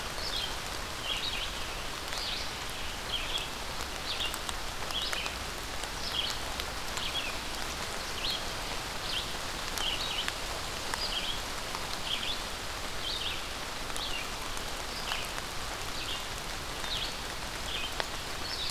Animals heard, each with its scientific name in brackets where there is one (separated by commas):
Red-eyed Vireo (Vireo olivaceus)